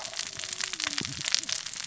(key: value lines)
label: biophony, cascading saw
recorder: SoundTrap 600 or HydroMoth